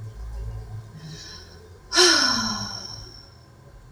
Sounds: Sigh